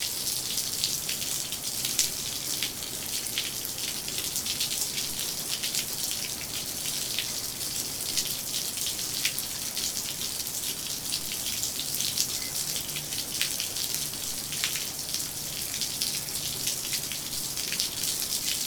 Is the water in a cup?
no